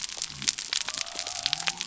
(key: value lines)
label: biophony
recorder: SoundTrap 300